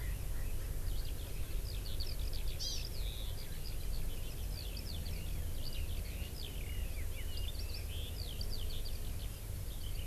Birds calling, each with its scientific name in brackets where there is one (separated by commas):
Hawaii Amakihi (Chlorodrepanis virens), Eurasian Skylark (Alauda arvensis), Erckel's Francolin (Pternistis erckelii)